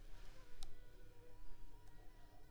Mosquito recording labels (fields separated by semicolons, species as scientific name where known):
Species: Culex pipiens complex; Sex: female; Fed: unfed; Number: one; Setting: cup